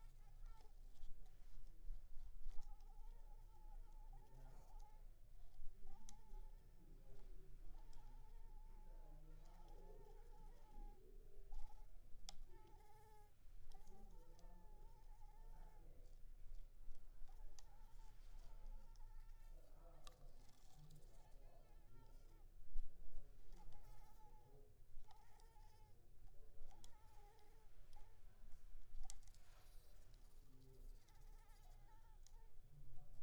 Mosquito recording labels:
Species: Anopheles arabiensis; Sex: female; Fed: unfed; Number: one; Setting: cup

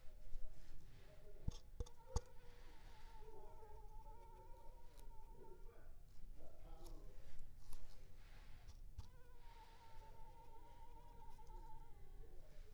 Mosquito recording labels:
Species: Culex pipiens complex; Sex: female; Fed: unfed; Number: one; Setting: cup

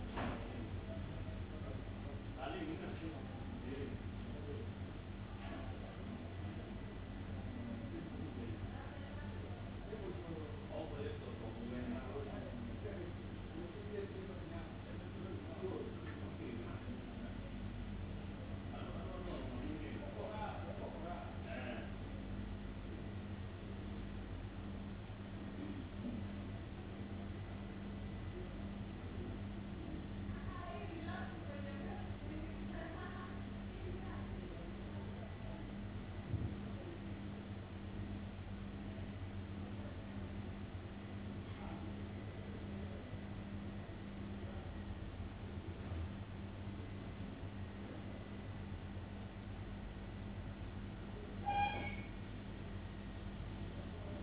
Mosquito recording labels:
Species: no mosquito; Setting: insect culture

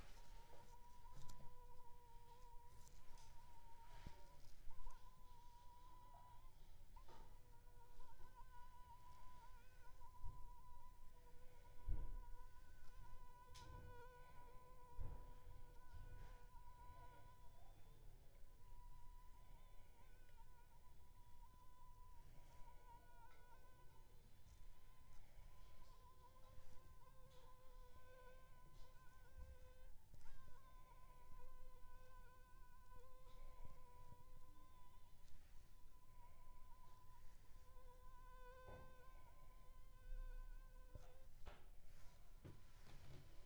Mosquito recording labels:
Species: Anopheles funestus s.s.; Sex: female; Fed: unfed; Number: one; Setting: cup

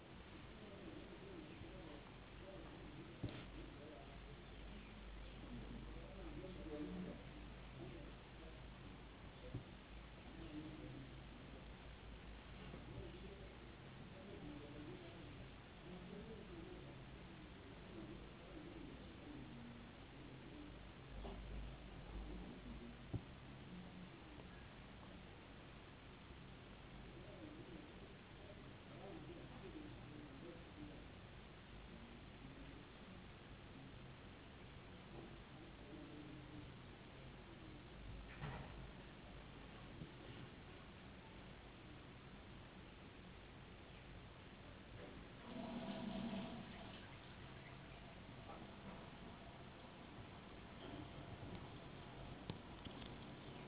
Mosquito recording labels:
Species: no mosquito; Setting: insect culture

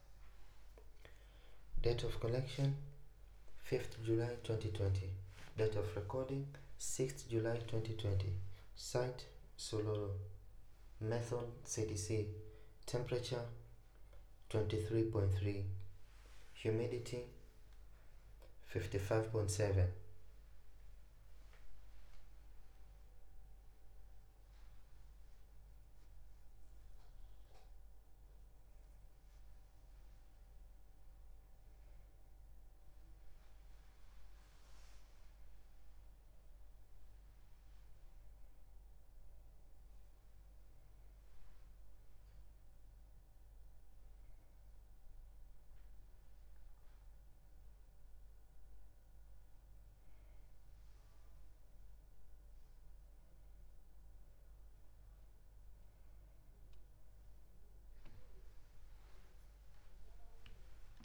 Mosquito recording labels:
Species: no mosquito; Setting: cup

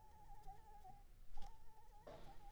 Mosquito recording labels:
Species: Anopheles arabiensis; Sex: female; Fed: blood-fed; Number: one; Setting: cup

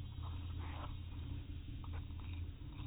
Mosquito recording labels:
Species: no mosquito; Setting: cup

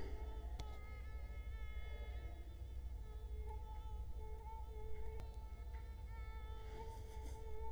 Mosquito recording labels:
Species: Culex quinquefasciatus; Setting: cup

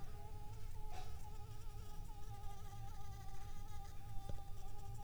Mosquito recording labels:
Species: Anopheles arabiensis; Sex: female; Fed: unfed; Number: one; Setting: cup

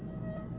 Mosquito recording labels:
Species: Aedes albopictus; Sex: male; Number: one; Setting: insect culture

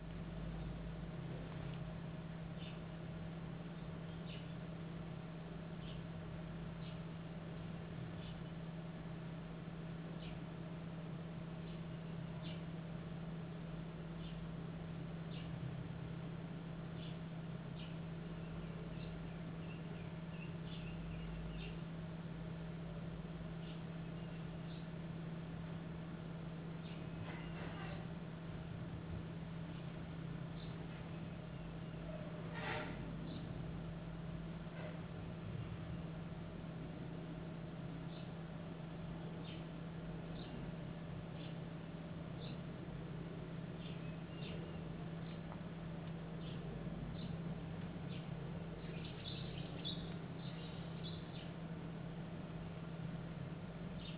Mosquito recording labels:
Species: no mosquito; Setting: insect culture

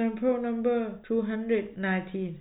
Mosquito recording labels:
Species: no mosquito; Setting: cup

